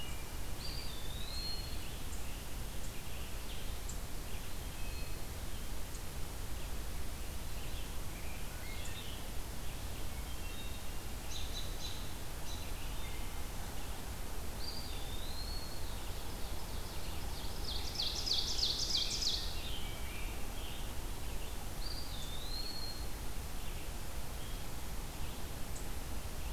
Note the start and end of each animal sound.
[0.00, 26.53] Red-eyed Vireo (Vireo olivaceus)
[0.52, 1.94] Eastern Wood-Pewee (Contopus virens)
[4.49, 5.36] Hermit Thrush (Catharus guttatus)
[9.90, 11.12] Hermit Thrush (Catharus guttatus)
[11.19, 12.59] American Robin (Turdus migratorius)
[14.47, 16.06] Eastern Wood-Pewee (Contopus virens)
[15.80, 19.64] Ovenbird (Seiurus aurocapilla)
[18.74, 20.97] Scarlet Tanager (Piranga olivacea)
[21.69, 23.33] Eastern Wood-Pewee (Contopus virens)

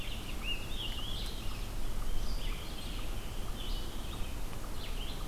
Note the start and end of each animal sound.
[0.00, 4.43] Scarlet Tanager (Piranga olivacea)
[0.00, 5.27] Red-eyed Vireo (Vireo olivaceus)

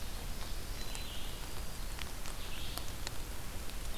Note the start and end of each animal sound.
[0.00, 3.98] Red-eyed Vireo (Vireo olivaceus)
[1.13, 2.27] Black-throated Green Warbler (Setophaga virens)

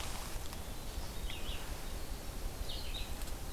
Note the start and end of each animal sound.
[0.00, 3.52] Red-eyed Vireo (Vireo olivaceus)
[0.31, 3.52] Winter Wren (Troglodytes hiemalis)

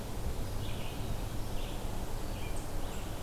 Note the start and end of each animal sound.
[0.00, 3.22] Red-eyed Vireo (Vireo olivaceus)

